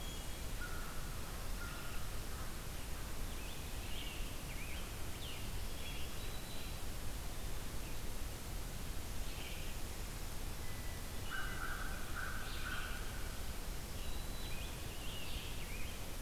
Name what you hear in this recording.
Hermit Thrush, American Crow, Scarlet Tanager, Black-throated Green Warbler, Red-eyed Vireo